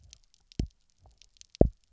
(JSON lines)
{"label": "biophony, double pulse", "recorder": "SoundTrap 300"}